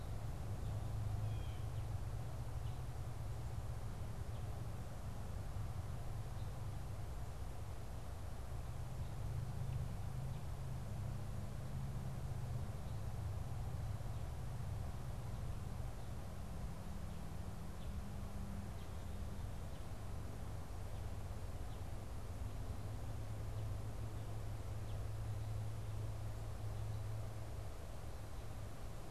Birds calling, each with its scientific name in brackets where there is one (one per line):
Blue Jay (Cyanocitta cristata)